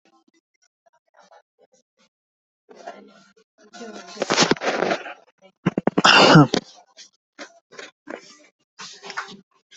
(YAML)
expert_labels:
- quality: poor
  cough_type: dry
  dyspnea: false
  wheezing: false
  stridor: false
  choking: false
  congestion: false
  nothing: true
  diagnosis: healthy cough
  severity: pseudocough/healthy cough
age: 25
gender: male
respiratory_condition: true
fever_muscle_pain: false
status: symptomatic